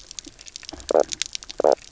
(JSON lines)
{"label": "biophony, knock croak", "recorder": "SoundTrap 300"}